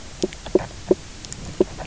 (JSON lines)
{"label": "biophony, knock croak", "recorder": "SoundTrap 300"}